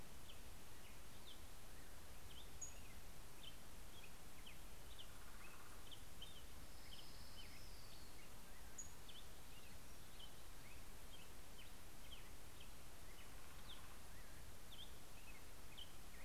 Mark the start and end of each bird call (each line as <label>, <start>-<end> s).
Black-headed Grosbeak (Pheucticus melanocephalus), 0.0-16.2 s
Northern Flicker (Colaptes auratus), 4.6-7.1 s
Orange-crowned Warbler (Leiothlypis celata), 6.5-8.8 s
Northern Flicker (Colaptes auratus), 12.7-15.1 s